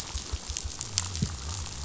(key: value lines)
label: biophony
recorder: SoundTrap 500